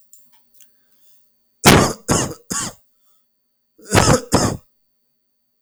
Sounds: Cough